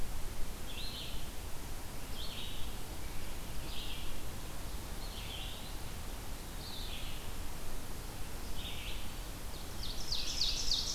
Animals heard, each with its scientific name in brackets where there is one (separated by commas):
Red-eyed Vireo (Vireo olivaceus), Ovenbird (Seiurus aurocapilla), Eastern Wood-Pewee (Contopus virens)